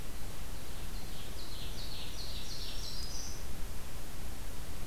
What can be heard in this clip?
Ovenbird, Black-throated Green Warbler